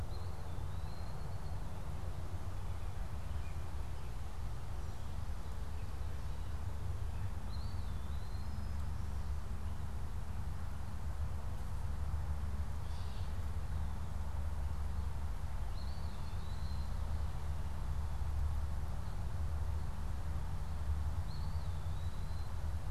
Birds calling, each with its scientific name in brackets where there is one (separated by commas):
Gray Catbird (Dumetella carolinensis), Eastern Wood-Pewee (Contopus virens)